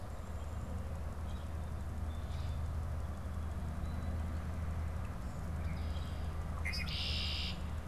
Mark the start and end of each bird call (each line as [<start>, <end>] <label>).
[5.30, 7.80] Red-winged Blackbird (Agelaius phoeniceus)